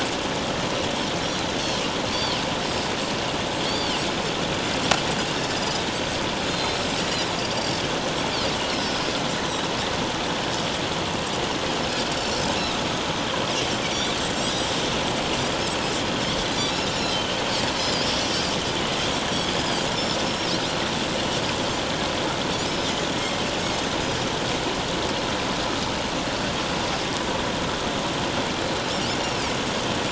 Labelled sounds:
2.1	2.4	Pacific white-sided dolphin, 4.2 to 4.7 kHz
3.7	4.0	Pacific white-sided dolphin, 4.1 to 4.8 kHz
5.5	5.8	Pacific white-sided dolphin, 4.8 to 5.1 kHz
6.5	7.3	Pacific white-sided dolphin, 3.9 to 7.1 kHz
7.6	7.8	Pacific white-sided dolphin, 7.2 to 7.6 kHz
8.7	9.0	Pacific white-sided dolphin, 4.5 to 5.6 kHz
12.2	12.5	Pacific white-sided dolphin, 5.0 to 5.6 kHz
13.8	14.7	Pacific white-sided dolphin, 4.5 to 7.9 kHz
16.4	16.8	Pacific white-sided dolphin, 3.8 to 4.1 kHz
17.8	18.1	Pacific white-sided dolphin, 4.7 to 5.2 kHz
20.2	20.6	Pacific white-sided dolphin, 5.2 to 5.8 kHz
23.6	23.9	Pacific white-sided dolphin, 6.2 to 6.7 kHz
29.2	29.5	Pacific white-sided dolphin, 4.5 to 5.8 kHz

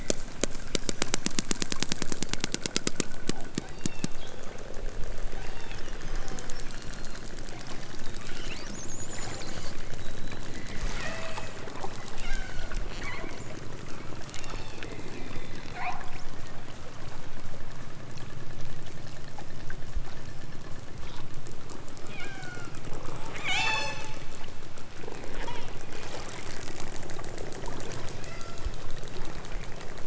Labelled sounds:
3.6	4.2	killer whale, southern Alaska resident, 1.4 to 5.9 kHz
5.3	7.2	killer whale, southern Alaska resident, 2.1 to 5.7 kHz
11.0	11.6	killer whale, southern Alaska resident, 0.18 to 8.0 kHz
12.2	12.8	killer whale, southern Alaska resident, 1.2 to 8.0 kHz
14.2	14.9	killer whale, southern Alaska resident, 2.0 to 4.7 kHz
15.1	16.0	killer whale, southern Alaska resident, 0.51 to 4.7 kHz
22.0	22.8	killer whale, southern Alaska resident, 1.0 to 7.3 kHz
23.2	24.0	killer whale, southern Alaska resident, 0.46 to 8.0 kHz
25.3	25.8	killer whale, southern Alaska resident, 0.83 to 3.7 kHz
28.2	28.8	killer whale, southern Alaska resident, 1.0 to 8.0 kHz

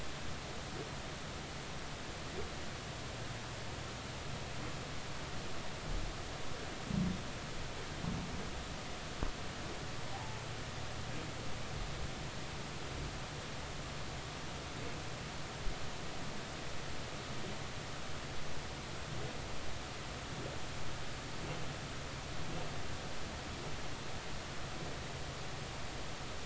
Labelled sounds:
10.1	10.4	humpback whale, 0.80 to 0.99 kHz

